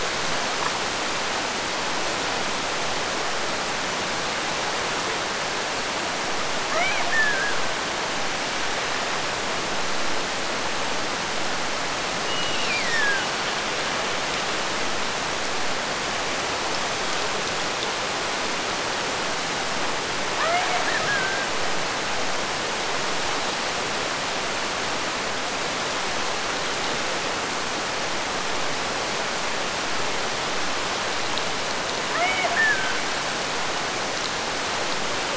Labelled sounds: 6.7	7.9	killer whale, Bigg's (transient), Gulf of Alaska transient, 0.49 to 5.9 kHz
12.2	13.5	killer whale, Bigg's (transient), Gulf of Alaska transient, 1.3 to 5.8 kHz
20.3	21.6	killer whale, Bigg's (transient), Gulf of Alaska transient, 0.46 to 2.5 kHz
32.1	33.2	killer whale, Bigg's (transient), Gulf of Alaska transient, 0.44 to 3.1 kHz

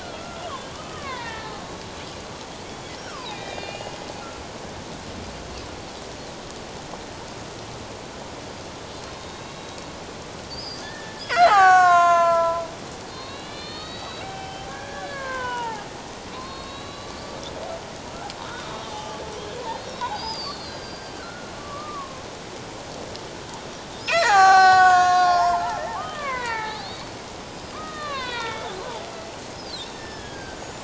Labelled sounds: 0.0	1.6	killer whale, Bigg's (transient), 0.84 to 2.4 kHz
3.0	3.9	killer whale, Bigg's (transient), 0.78 to 4.9 kHz
9.1	12.6	killer whale, Bigg's (transient), 0.78 to 7.8 kHz
13.1	15.9	killer whale, Bigg's (transient), 0.78 to 4.7 kHz
16.3	17.4	killer whale, Bigg's (transient), 0.97 to 4.8 kHz
18.4	19.2	killer whale, Bigg's (transient), 0.81 to 3.9 kHz
19.7	22.2	killer whale, Bigg's (transient), 0.78 to 5.2 kHz
24.0	27.0	killer whale, Bigg's (transient), 0.78 to 7.6 kHz
27.5	28.8	killer whale, Bigg's (transient), 0.88 to 5.0 kHz
29.5	30.6	killer whale, Bigg's (transient), 1.5 to 5.4 kHz

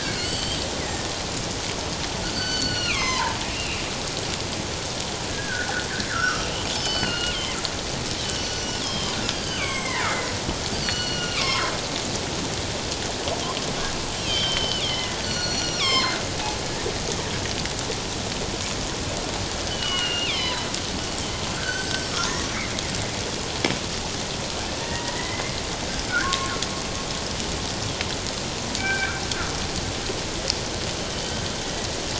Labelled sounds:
2.3	3.8	killer whale, northern resident, G clan, 0.84 to 6.2 kHz
5.3	7.4	killer whale, northern resident, G clan, 1.2 to 4.7 kHz
8.3	9.2	killer whale, northern resident, G clan, 3.0 to 6.0 kHz
9.4	10.3	killer whale, northern resident, G clan, 1.0 to 7.8 kHz
10.7	11.7	killer whale, northern resident, G clan, 0.91 to 7.4 kHz
14.2	16.2	killer whale, northern resident, G clan, 0.97 to 5.9 kHz
19.7	20.7	killer whale, northern resident, G clan, 0.91 to 5.3 kHz
21.6	22.6	killer whale, northern resident, G clan, 0.97 to 7.8 kHz
24.8	25.5	killer whale, northern resident, G clan, 0.91 to 2.2 kHz
26.1	26.5	killer whale, northern resident, G clan, 1.0 to 1.8 kHz
28.8	29.2	killer whale, northern resident, G clan, 1.3 to 2.4 kHz
31.1	31.4	killer whale, northern resident, G clan, 3.0 to 3.2 kHz

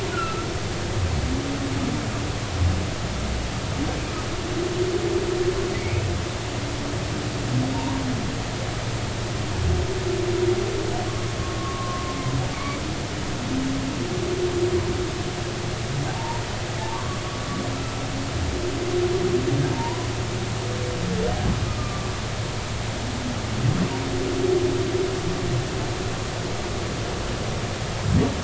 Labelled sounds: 0.1	0.5	humpback whale, 1.2 to 1.5 kHz
5.8	6.1	humpback whale, 2.1 to 2.7 kHz
7.7	8.0	humpback whale, 0.86 to 1.1 kHz
11.6	12.0	humpback whale, 1.0 to 1.2 kHz
12.5	12.8	humpback whale, 2.1 to 2.3 kHz
16.1	17.2	humpback whale, 0.80 to 1.2 kHz
17.7	18.0	humpback whale, 1.2 to 1.4 kHz
19.7	20.1	humpback whale, 0.83 to 1.1 kHz
21.7	22.1	humpback whale, 1.1 to 1.3 kHz

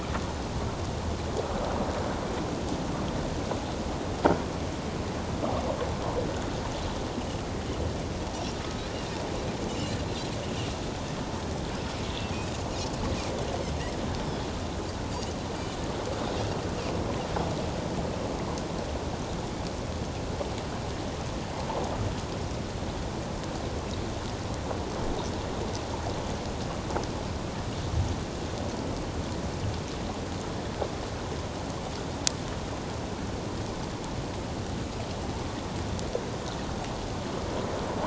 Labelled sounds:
9.7	10.0	Pacific white-sided dolphin, 2.7 to 3.1 kHz

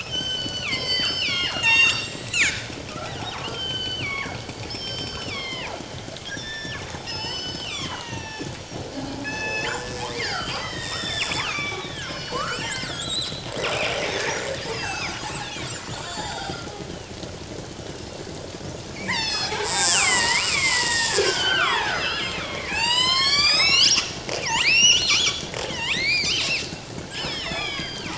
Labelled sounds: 0.0	2.7	killer whale, northern resident, G clan, 0.97 to 8.0 kHz
3.2	5.8	killer whale, northern resident, G clan, 0.78 to 6.3 kHz
6.3	9.7	killer whale, northern resident, G clan, 0.81 to 6.6 kHz
10.0	14.4	killer whale, northern resident, G clan, 0.81 to 8.0 kHz
14.7	15.2	killer whale, northern resident, G clan, 1.2 to 6.9 kHz
16.0	16.5	killer whale, northern resident, G clan, 0.78 to 7.5 kHz
17.6	18.1	killer whale, northern resident, G clan, 2.7 to 3.1 kHz
18.9	24.1	killer whale, northern resident, G clan, 0.78 to 8.0 kHz
24.4	26.7	killer whale, northern resident, G clan, 1.1 to 8.0 kHz
27.5	27.8	killer whale, northern resident, G clan, 1.0 to 4.3 kHz

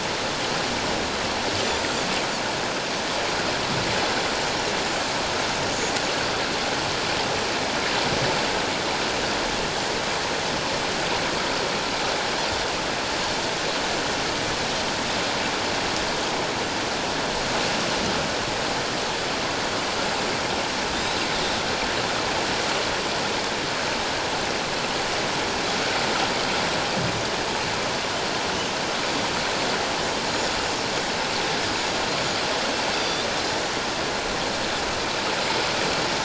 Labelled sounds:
20.9	21.2	Pacific white-sided dolphin, 3.5 to 4.0 kHz
33.0	33.3	Pacific white-sided dolphin, 3.4 to 4.8 kHz

